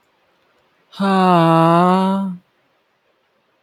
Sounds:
Sigh